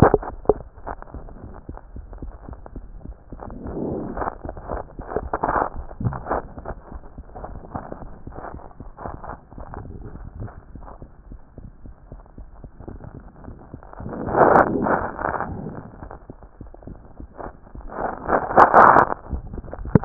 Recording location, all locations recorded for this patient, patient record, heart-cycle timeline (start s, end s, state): mitral valve (MV)
aortic valve (AV)+mitral valve (MV)
#Age: Child
#Sex: Male
#Height: 89.0 cm
#Weight: 12.7 kg
#Pregnancy status: False
#Murmur: Absent
#Murmur locations: nan
#Most audible location: nan
#Systolic murmur timing: nan
#Systolic murmur shape: nan
#Systolic murmur grading: nan
#Systolic murmur pitch: nan
#Systolic murmur quality: nan
#Diastolic murmur timing: nan
#Diastolic murmur shape: nan
#Diastolic murmur grading: nan
#Diastolic murmur pitch: nan
#Diastolic murmur quality: nan
#Outcome: Normal
#Campaign: 2014 screening campaign
0.00	11.18	unannotated
11.18	11.30	diastole
11.30	11.40	S1
11.40	11.58	systole
11.58	11.70	S2
11.70	11.88	diastole
11.88	11.94	S1
11.94	12.12	systole
12.12	12.20	S2
12.20	12.40	diastole
12.40	12.48	S1
12.48	12.62	systole
12.62	12.70	S2
12.70	12.88	diastole
12.88	13.00	S1
13.00	13.14	systole
13.14	13.24	S2
13.24	13.50	diastole
13.50	13.56	S1
13.56	13.72	systole
13.72	13.80	S2
13.80	14.04	diastole
14.04	14.14	S1
14.14	14.24	systole
14.24	20.05	unannotated